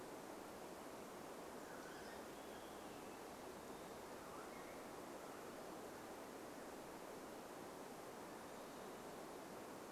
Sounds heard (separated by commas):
Western Wood-Pewee song, Olive-sided Flycatcher song, unidentified sound